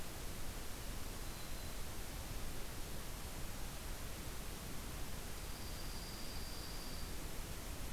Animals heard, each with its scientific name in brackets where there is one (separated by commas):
Dark-eyed Junco (Junco hyemalis), Black-throated Green Warbler (Setophaga virens)